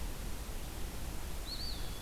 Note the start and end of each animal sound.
1.1s-2.0s: Eastern Wood-Pewee (Contopus virens)

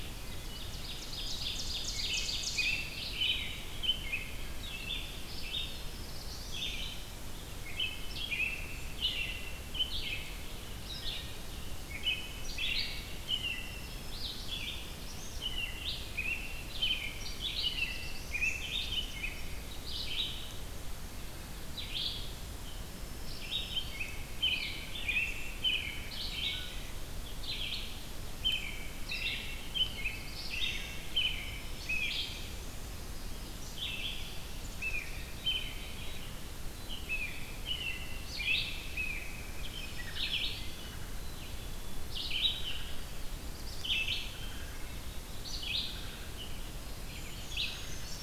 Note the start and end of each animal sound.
0.0s-3.0s: Ovenbird (Seiurus aurocapilla)
0.1s-0.8s: Wood Thrush (Hylocichla mustelina)
1.8s-5.7s: American Robin (Turdus migratorius)
2.3s-48.2s: Red-eyed Vireo (Vireo olivaceus)
5.3s-6.8s: Black-throated Green Warbler (Setophaga virens)
5.5s-7.1s: Black-throated Blue Warbler (Setophaga caerulescens)
7.6s-10.5s: American Robin (Turdus migratorius)
10.7s-11.3s: Wood Thrush (Hylocichla mustelina)
11.9s-13.9s: American Robin (Turdus migratorius)
13.6s-14.6s: Black-throated Green Warbler (Setophaga virens)
15.3s-19.9s: American Robin (Turdus migratorius)
17.0s-18.9s: Black-throated Blue Warbler (Setophaga caerulescens)
18.8s-19.8s: Black-capped Chickadee (Poecile atricapillus)
23.0s-24.1s: Black-throated Green Warbler (Setophaga virens)
23.4s-27.2s: American Robin (Turdus migratorius)
27.9s-32.5s: American Robin (Turdus migratorius)
29.6s-31.3s: Black-throated Blue Warbler (Setophaga caerulescens)
31.4s-32.4s: Black-throated Green Warbler (Setophaga virens)
32.8s-34.6s: Ovenbird (Seiurus aurocapilla)
34.6s-36.2s: Black-capped Chickadee (Poecile atricapillus)
36.6s-37.6s: Black-capped Chickadee (Poecile atricapillus)
37.0s-39.4s: American Robin (Turdus migratorius)
39.3s-41.1s: Black-throated Green Warbler (Setophaga virens)
39.9s-40.4s: Wood Thrush (Hylocichla mustelina)
42.5s-43.0s: Wood Thrush (Hylocichla mustelina)
42.7s-44.6s: Black-throated Blue Warbler (Setophaga caerulescens)
44.2s-45.4s: Wood Thrush (Hylocichla mustelina)
47.0s-48.2s: Brown Creeper (Certhia americana)

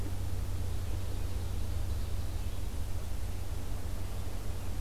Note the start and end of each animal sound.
0.1s-2.7s: Ovenbird (Seiurus aurocapilla)

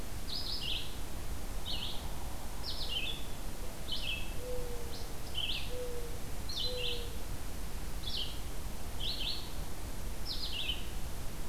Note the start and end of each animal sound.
0.0s-1.0s: Red-eyed Vireo (Vireo olivaceus)
1.5s-11.5s: Red-eyed Vireo (Vireo olivaceus)
3.4s-7.2s: Mourning Dove (Zenaida macroura)

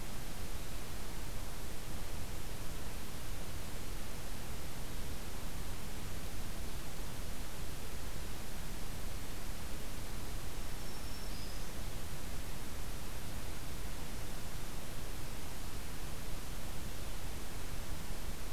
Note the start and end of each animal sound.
10.4s-11.9s: Black-throated Green Warbler (Setophaga virens)

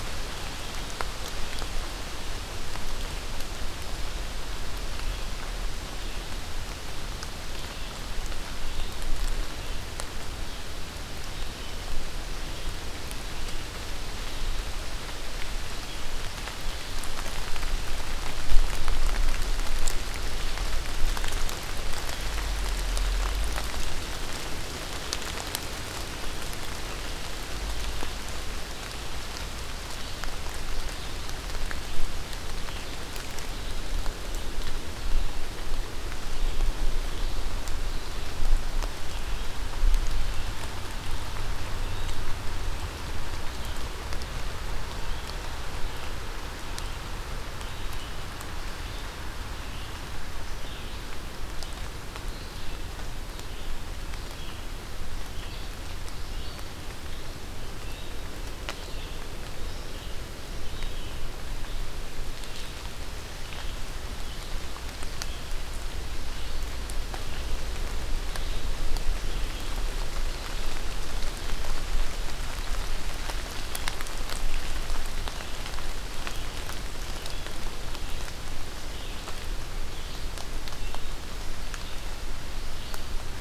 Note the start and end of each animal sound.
32.3s-83.4s: Red-eyed Vireo (Vireo olivaceus)

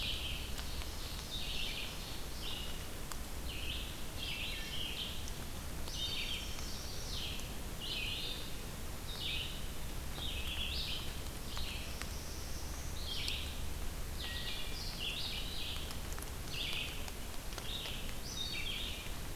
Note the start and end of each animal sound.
0.0s-13.5s: Red-eyed Vireo (Vireo olivaceus)
0.1s-2.7s: Ovenbird (Seiurus aurocapilla)
4.0s-5.1s: Wood Thrush (Hylocichla mustelina)
5.8s-6.8s: Wood Thrush (Hylocichla mustelina)
6.2s-7.3s: Chestnut-sided Warbler (Setophaga pensylvanica)
11.2s-13.1s: Black-throated Blue Warbler (Setophaga caerulescens)
14.0s-19.4s: Red-eyed Vireo (Vireo olivaceus)
14.1s-15.0s: Wood Thrush (Hylocichla mustelina)

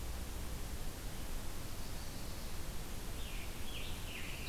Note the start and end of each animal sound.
3.2s-4.5s: Scarlet Tanager (Piranga olivacea)

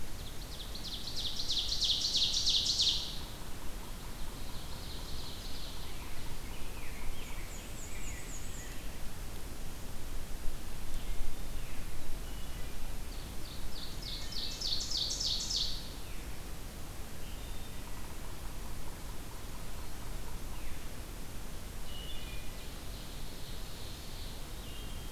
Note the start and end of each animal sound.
0.0s-3.4s: Ovenbird (Seiurus aurocapilla)
3.8s-6.1s: Ovenbird (Seiurus aurocapilla)
5.7s-8.9s: Rose-breasted Grosbeak (Pheucticus ludovicianus)
7.0s-9.1s: Black-and-white Warbler (Mniotilta varia)
10.8s-11.6s: Wood Thrush (Hylocichla mustelina)
11.5s-11.9s: Veery (Catharus fuscescens)
12.1s-12.9s: Wood Thrush (Hylocichla mustelina)
13.0s-15.9s: Ovenbird (Seiurus aurocapilla)
13.9s-14.8s: Wood Thrush (Hylocichla mustelina)
15.9s-16.3s: Veery (Catharus fuscescens)
17.2s-17.8s: Wood Thrush (Hylocichla mustelina)
17.8s-20.8s: Yellow-bellied Sapsucker (Sphyrapicus varius)
20.5s-20.9s: Veery (Catharus fuscescens)
21.7s-22.7s: Wood Thrush (Hylocichla mustelina)
22.3s-24.6s: Ovenbird (Seiurus aurocapilla)
24.4s-25.1s: Wood Thrush (Hylocichla mustelina)

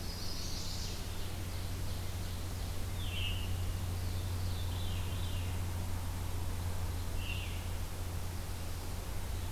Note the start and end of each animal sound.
0.0s-1.1s: Chestnut-sided Warbler (Setophaga pensylvanica)
0.0s-2.9s: Ovenbird (Seiurus aurocapilla)
2.8s-3.5s: Veery (Catharus fuscescens)
3.8s-5.6s: Veery (Catharus fuscescens)
7.1s-7.6s: Veery (Catharus fuscescens)

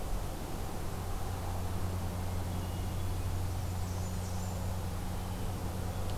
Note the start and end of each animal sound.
2.1s-3.0s: Hermit Thrush (Catharus guttatus)
3.4s-4.8s: Blackburnian Warbler (Setophaga fusca)

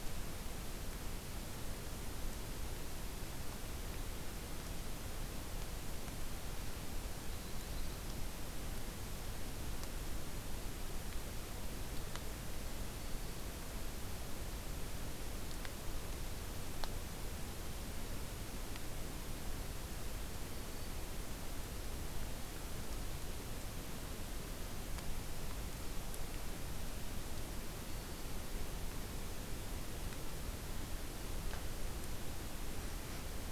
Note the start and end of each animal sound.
7.0s-8.1s: Yellow-rumped Warbler (Setophaga coronata)
12.7s-13.6s: Black-throated Green Warbler (Setophaga virens)
20.3s-21.1s: Black-throated Green Warbler (Setophaga virens)
27.8s-28.8s: Black-throated Green Warbler (Setophaga virens)

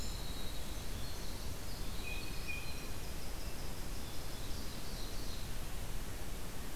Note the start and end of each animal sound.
0.0s-4.7s: Winter Wren (Troglodytes hiemalis)
1.7s-3.0s: Blue Jay (Cyanocitta cristata)
4.2s-5.5s: Red Squirrel (Tamiasciurus hudsonicus)

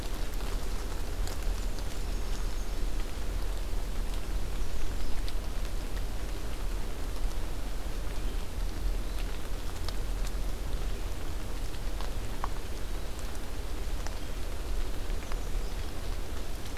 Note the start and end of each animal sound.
1.3s-3.0s: Black-and-white Warbler (Mniotilta varia)
4.4s-5.2s: American Redstart (Setophaga ruticilla)
15.0s-16.1s: American Redstart (Setophaga ruticilla)

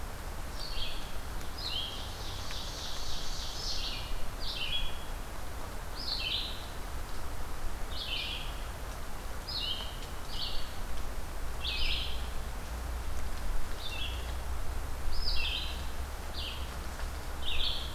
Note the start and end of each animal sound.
0.0s-17.8s: Red-eyed Vireo (Vireo olivaceus)
1.9s-4.1s: Ovenbird (Seiurus aurocapilla)

